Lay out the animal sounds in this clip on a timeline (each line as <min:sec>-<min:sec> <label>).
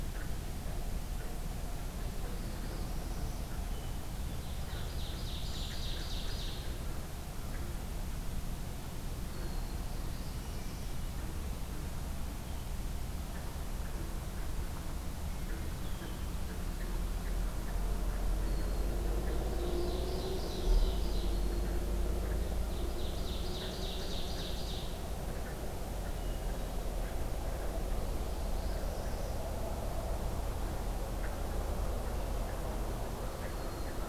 0:02.3-0:03.5 Northern Parula (Setophaga americana)
0:03.5-0:04.5 Hermit Thrush (Catharus guttatus)
0:04.3-0:06.7 Ovenbird (Seiurus aurocapilla)
0:05.4-0:05.8 Brown Creeper (Certhia americana)
0:09.3-0:09.9 Red-winged Blackbird (Agelaius phoeniceus)
0:09.9-0:11.0 Northern Parula (Setophaga americana)
0:15.8-0:16.3 Red-winged Blackbird (Agelaius phoeniceus)
0:18.4-0:18.9 Red-winged Blackbird (Agelaius phoeniceus)
0:19.4-0:21.3 Ovenbird (Seiurus aurocapilla)
0:21.1-0:21.8 Red-winged Blackbird (Agelaius phoeniceus)
0:22.6-0:24.9 Ovenbird (Seiurus aurocapilla)
0:26.1-0:26.5 Red-winged Blackbird (Agelaius phoeniceus)
0:27.9-0:29.4 Northern Parula (Setophaga americana)
0:33.4-0:34.1 Red-winged Blackbird (Agelaius phoeniceus)